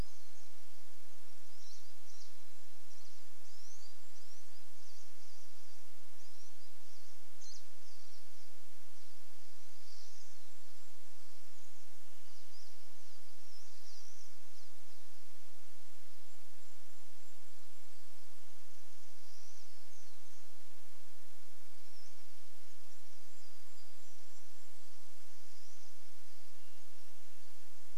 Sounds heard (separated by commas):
Pine Siskin call, Pine Siskin song, Varied Thrush song, Golden-crowned Kinglet song, warbler song